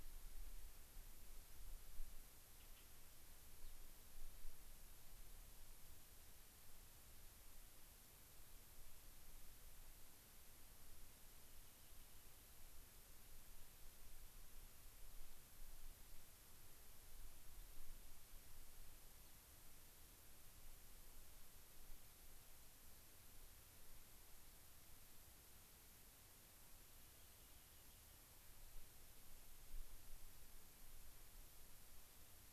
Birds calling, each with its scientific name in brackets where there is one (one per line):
Rock Wren (Salpinctes obsoletus)
Gray-crowned Rosy-Finch (Leucosticte tephrocotis)